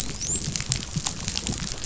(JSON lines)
{"label": "biophony, dolphin", "recorder": "SoundTrap 500"}